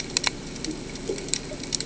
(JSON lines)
{"label": "ambient", "recorder": "HydroMoth"}